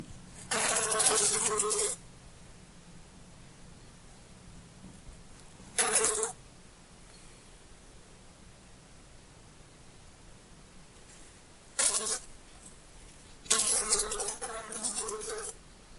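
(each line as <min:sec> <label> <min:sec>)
0:00.0 A rushing sound hums monotonically in a steady pattern near a window. 0:16.0
0:00.5 A fly buzzes in a rhythmic, fluctuating pattern near a window. 0:02.0
0:05.8 A fly buzzes in a rhythmic, fluctuating pattern near a window. 0:06.3
0:11.8 A fly buzzes in a rhythmic, fluctuating pattern near a window. 0:12.2
0:13.5 A fly buzzes in a rhythmic, decreasing pattern near a window. 0:15.6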